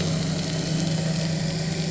{"label": "anthrophony, boat engine", "recorder": "SoundTrap 300"}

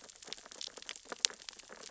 {"label": "biophony, sea urchins (Echinidae)", "recorder": "SoundTrap 600 or HydroMoth"}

